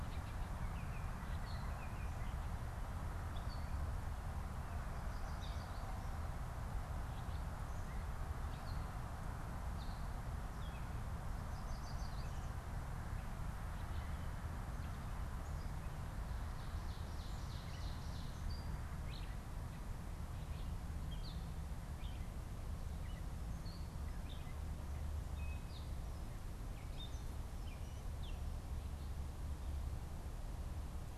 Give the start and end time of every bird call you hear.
0.0s-2.3s: Baltimore Oriole (Icterus galbula)
11.3s-12.5s: Yellow Warbler (Setophaga petechia)
16.2s-18.4s: Ovenbird (Seiurus aurocapilla)
18.4s-26.0s: Gray Catbird (Dumetella carolinensis)
26.7s-28.5s: Gray Catbird (Dumetella carolinensis)

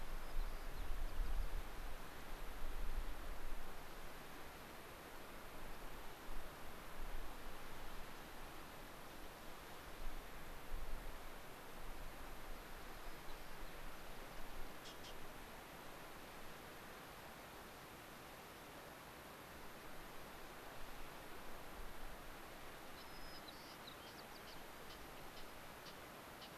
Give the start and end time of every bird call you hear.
0.0s-1.8s: White-crowned Sparrow (Zonotrichia leucophrys)
12.9s-14.4s: White-crowned Sparrow (Zonotrichia leucophrys)
22.9s-24.4s: White-crowned Sparrow (Zonotrichia leucophrys)

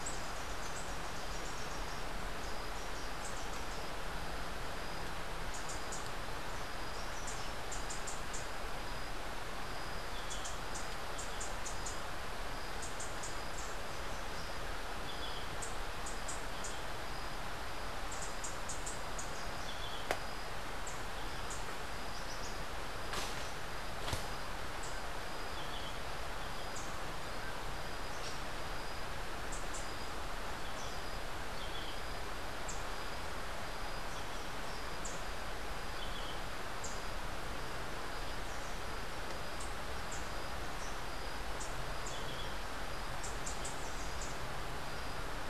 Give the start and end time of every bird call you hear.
0.0s-3.7s: Rufous-capped Warbler (Basileuterus rufifrons)
5.5s-6.0s: Rufous-capped Warbler (Basileuterus rufifrons)
7.6s-22.0s: Rufous-capped Warbler (Basileuterus rufifrons)
15.0s-15.6s: Yellow-throated Euphonia (Euphonia hirundinacea)
19.6s-20.1s: Yellow-throated Euphonia (Euphonia hirundinacea)
24.7s-37.4s: Rufous-capped Warbler (Basileuterus rufifrons)
25.5s-26.1s: Yellow-throated Euphonia (Euphonia hirundinacea)
27.9s-28.6s: Squirrel Cuckoo (Piaya cayana)
31.5s-32.1s: Yellow-throated Euphonia (Euphonia hirundinacea)
36.0s-36.4s: Yellow-throated Euphonia (Euphonia hirundinacea)
39.5s-44.3s: Rufous-capped Warbler (Basileuterus rufifrons)
42.0s-42.7s: Yellow-throated Euphonia (Euphonia hirundinacea)

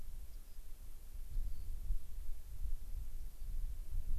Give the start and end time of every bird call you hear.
0.2s-0.6s: Rock Wren (Salpinctes obsoletus)
1.3s-1.7s: Rock Wren (Salpinctes obsoletus)
3.2s-3.4s: Rock Wren (Salpinctes obsoletus)

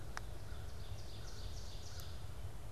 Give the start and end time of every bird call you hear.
0.0s-2.4s: Ovenbird (Seiurus aurocapilla)

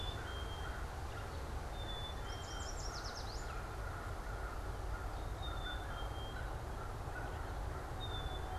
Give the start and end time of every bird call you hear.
0.0s-8.6s: American Crow (Corvus brachyrhynchos)
0.0s-8.6s: Black-capped Chickadee (Poecile atricapillus)
2.1s-3.6s: Yellow Warbler (Setophaga petechia)

